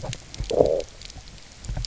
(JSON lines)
{"label": "biophony, low growl", "recorder": "SoundTrap 300"}